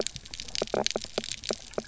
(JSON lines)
{"label": "biophony, knock croak", "recorder": "SoundTrap 300"}